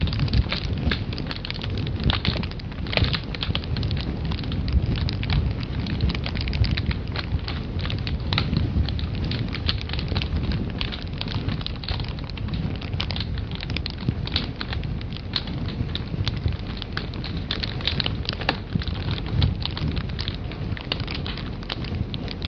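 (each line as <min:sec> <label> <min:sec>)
0:00.0 Fire burning in a fireplace. 0:22.5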